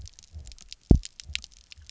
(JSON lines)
{"label": "biophony, double pulse", "recorder": "SoundTrap 300"}